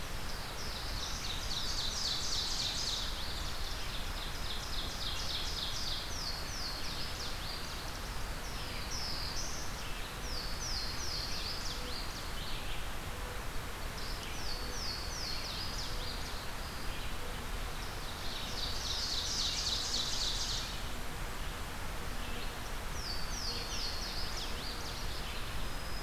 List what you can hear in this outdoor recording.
Black-throated Blue Warbler, Red-eyed Vireo, Ovenbird, Louisiana Waterthrush